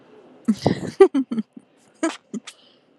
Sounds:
Laughter